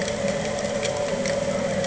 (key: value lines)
label: anthrophony, boat engine
recorder: HydroMoth